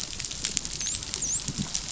{"label": "biophony, dolphin", "recorder": "SoundTrap 500"}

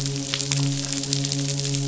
{"label": "biophony, midshipman", "recorder": "SoundTrap 500"}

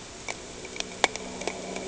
{"label": "anthrophony, boat engine", "recorder": "HydroMoth"}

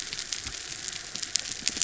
{"label": "anthrophony, mechanical", "recorder": "SoundTrap 300"}
{"label": "biophony", "recorder": "SoundTrap 300"}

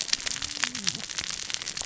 {"label": "biophony, cascading saw", "recorder": "SoundTrap 600 or HydroMoth"}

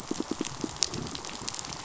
{"label": "biophony, pulse", "recorder": "SoundTrap 500"}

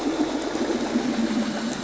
{"label": "anthrophony, boat engine", "recorder": "SoundTrap 500"}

